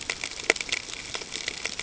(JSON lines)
{"label": "ambient", "recorder": "HydroMoth"}